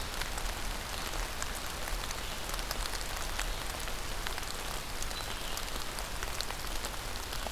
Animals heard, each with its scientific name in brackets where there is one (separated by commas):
Red-eyed Vireo (Vireo olivaceus)